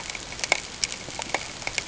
{"label": "ambient", "recorder": "HydroMoth"}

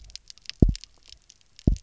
{"label": "biophony, double pulse", "recorder": "SoundTrap 300"}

